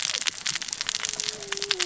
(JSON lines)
{"label": "biophony, cascading saw", "recorder": "SoundTrap 600 or HydroMoth"}